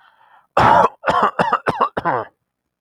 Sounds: Cough